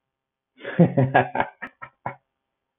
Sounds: Laughter